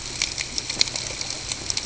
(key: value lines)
label: ambient
recorder: HydroMoth